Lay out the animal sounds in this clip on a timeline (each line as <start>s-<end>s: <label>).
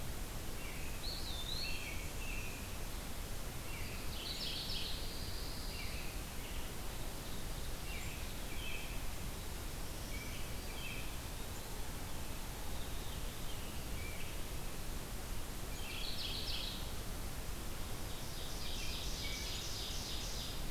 0.4s-1.0s: American Robin (Turdus migratorius)
0.8s-2.0s: Eastern Wood-Pewee (Contopus virens)
1.5s-2.7s: American Robin (Turdus migratorius)
3.5s-4.2s: American Robin (Turdus migratorius)
3.9s-5.1s: Mourning Warbler (Geothlypis philadelphia)
4.7s-6.2s: Pine Warbler (Setophaga pinus)
5.5s-6.8s: American Robin (Turdus migratorius)
7.7s-9.0s: American Robin (Turdus migratorius)
10.1s-11.1s: American Robin (Turdus migratorius)
10.5s-11.9s: Eastern Wood-Pewee (Contopus virens)
12.5s-14.0s: Veery (Catharus fuscescens)
13.7s-14.5s: American Robin (Turdus migratorius)
15.4s-17.1s: Mourning Warbler (Geothlypis philadelphia)
17.9s-20.7s: Ovenbird (Seiurus aurocapilla)
18.4s-19.6s: American Robin (Turdus migratorius)